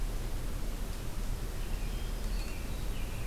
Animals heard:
Hermit Thrush (Catharus guttatus), Black-throated Green Warbler (Setophaga virens), American Robin (Turdus migratorius)

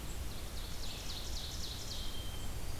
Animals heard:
Blue-headed Vireo (Vireo solitarius), Ovenbird (Seiurus aurocapilla), Red-eyed Vireo (Vireo olivaceus), Blackburnian Warbler (Setophaga fusca)

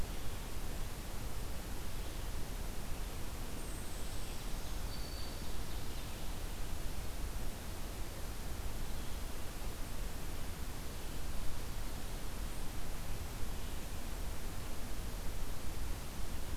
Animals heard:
Black-throated Green Warbler (Setophaga virens)

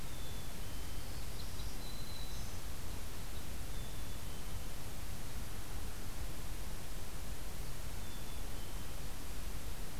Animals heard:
Black-capped Chickadee (Poecile atricapillus), Red Crossbill (Loxia curvirostra), Black-throated Green Warbler (Setophaga virens)

